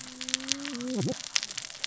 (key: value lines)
label: biophony, cascading saw
recorder: SoundTrap 600 or HydroMoth